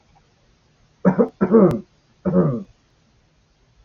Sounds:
Cough